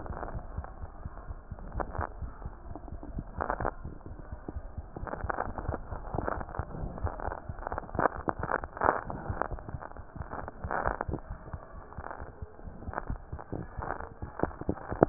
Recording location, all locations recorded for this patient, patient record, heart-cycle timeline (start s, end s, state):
mitral valve (MV)
aortic valve (AV)+pulmonary valve (PV)+tricuspid valve (TV)+mitral valve (MV)
#Age: Child
#Sex: Male
#Height: 82.0 cm
#Weight: 11.1 kg
#Pregnancy status: False
#Murmur: Absent
#Murmur locations: nan
#Most audible location: nan
#Systolic murmur timing: nan
#Systolic murmur shape: nan
#Systolic murmur grading: nan
#Systolic murmur pitch: nan
#Systolic murmur quality: nan
#Diastolic murmur timing: nan
#Diastolic murmur shape: nan
#Diastolic murmur grading: nan
#Diastolic murmur pitch: nan
#Diastolic murmur quality: nan
#Outcome: Abnormal
#Campaign: 2015 screening campaign
0.00	0.16	unannotated
0.16	0.33	diastole
0.33	0.41	S1
0.41	0.54	systole
0.54	0.63	S2
0.63	0.78	diastole
0.78	0.89	S1
0.89	1.03	systole
1.03	1.08	S2
1.08	1.28	diastole
1.28	1.37	S1
1.37	1.50	systole
1.50	1.57	S2
1.57	1.75	diastole
1.75	1.83	S1
1.83	1.96	systole
1.96	2.03	S2
2.03	2.20	diastole
2.20	2.27	S1
2.27	2.42	systole
2.42	2.50	S2
2.50	2.66	diastole
2.66	2.78	S1
2.78	2.89	systole
2.89	2.99	S2
2.99	3.13	diastole
3.13	3.23	S1
3.23	3.35	systole
3.35	3.43	S2
3.43	3.57	diastole
3.57	3.66	S1
3.66	3.79	systole
3.79	3.91	S2
3.91	4.05	diastole
4.05	4.17	S1
4.17	4.30	systole
4.30	4.37	S2
4.37	4.54	diastole
4.54	4.61	S1
4.61	4.75	systole
4.75	4.83	S2
4.83	5.02	diastole
5.02	15.09	unannotated